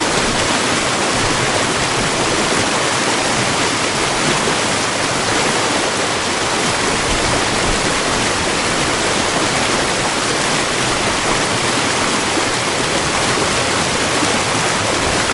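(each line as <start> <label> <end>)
0.0 A fast-flowing stream rushing loudly and continuously. 15.3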